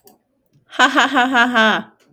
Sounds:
Laughter